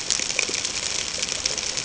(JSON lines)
{"label": "ambient", "recorder": "HydroMoth"}